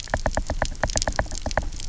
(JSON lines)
{"label": "biophony, knock", "recorder": "SoundTrap 300"}